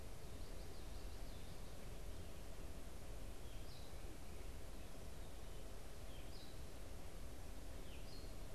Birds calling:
unidentified bird

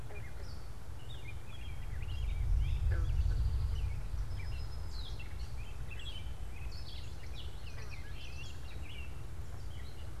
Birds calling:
American Robin (Turdus migratorius)
Eastern Towhee (Pipilo erythrophthalmus)
Common Yellowthroat (Geothlypis trichas)

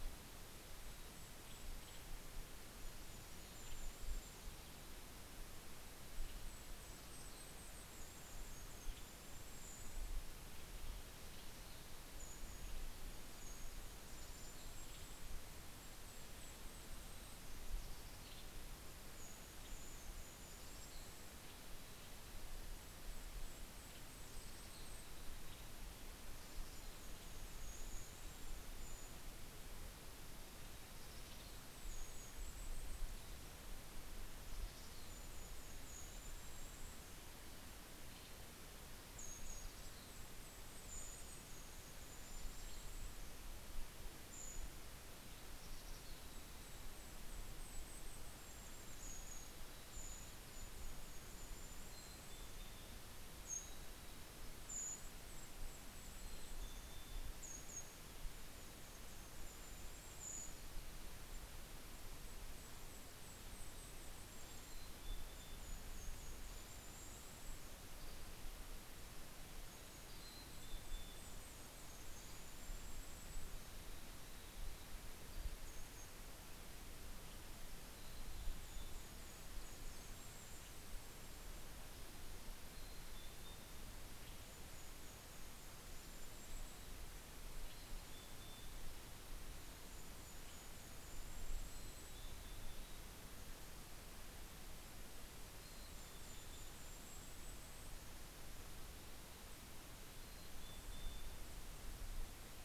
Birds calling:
Western Tanager (Piranga ludoviciana)
Mountain Chickadee (Poecile gambeli)
Brown Creeper (Certhia americana)
Dusky Flycatcher (Empidonax oberholseri)
Golden-crowned Kinglet (Regulus satrapa)

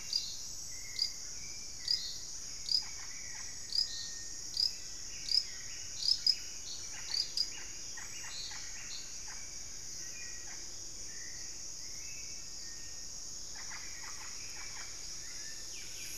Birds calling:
Black-faced Antthrush (Formicarius analis)
Hauxwell's Thrush (Turdus hauxwelli)
unidentified bird
Buff-breasted Wren (Cantorchilus leucotis)
Russet-backed Oropendola (Psarocolius angustifrons)

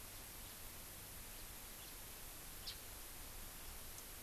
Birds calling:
Japanese Bush Warbler (Horornis diphone)
House Finch (Haemorhous mexicanus)

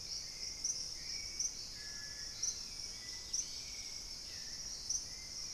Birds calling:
Purple-throated Fruitcrow (Querula purpurata)
Hauxwell's Thrush (Turdus hauxwelli)
White-throated Toucan (Ramphastos tucanus)
Dusky-capped Greenlet (Pachysylvia hypoxantha)

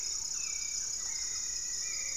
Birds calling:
Rufous-fronted Antthrush (Formicarius rufifrons)
Hauxwell's Thrush (Turdus hauxwelli)
Thrush-like Wren (Campylorhynchus turdinus)
Red-bellied Macaw (Orthopsittaca manilatus)

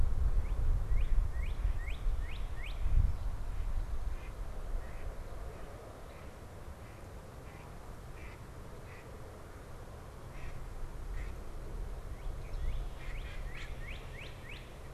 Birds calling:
Mallard (Anas platyrhynchos)
Northern Cardinal (Cardinalis cardinalis)

